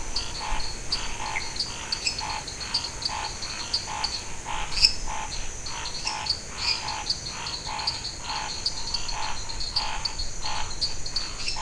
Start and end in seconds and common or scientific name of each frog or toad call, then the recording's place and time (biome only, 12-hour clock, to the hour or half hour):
0.0	11.6	dwarf tree frog
0.0	11.6	Scinax fuscovarius
4.7	6.7	lesser tree frog
Cerrado, ~8pm